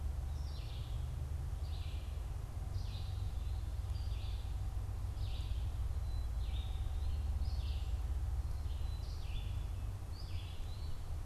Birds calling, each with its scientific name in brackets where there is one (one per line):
Red-eyed Vireo (Vireo olivaceus)
Black-capped Chickadee (Poecile atricapillus)
Eastern Wood-Pewee (Contopus virens)